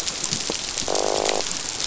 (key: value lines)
label: biophony, croak
recorder: SoundTrap 500